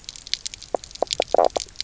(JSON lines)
{"label": "biophony, knock croak", "recorder": "SoundTrap 300"}